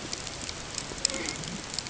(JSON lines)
{"label": "ambient", "recorder": "HydroMoth"}